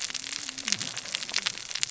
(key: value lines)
label: biophony, cascading saw
recorder: SoundTrap 600 or HydroMoth